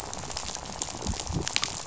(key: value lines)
label: biophony, rattle
recorder: SoundTrap 500